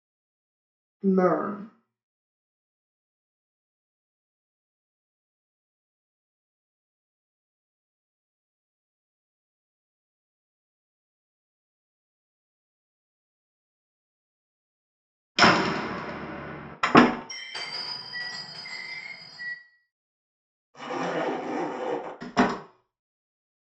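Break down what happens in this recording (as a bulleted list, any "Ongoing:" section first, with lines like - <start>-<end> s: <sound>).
- 1.0-1.6 s: someone says "learn"
- 15.4-16.8 s: slamming is audible
- 16.8-17.2 s: there is slamming
- 17.3-19.5 s: glass can be heard
- 20.7-22.2 s: the sound of a zipper
- 22.2-22.6 s: a wooden door closes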